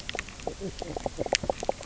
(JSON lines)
{"label": "biophony, knock croak", "recorder": "SoundTrap 300"}